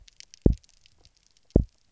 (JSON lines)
{"label": "biophony, double pulse", "recorder": "SoundTrap 300"}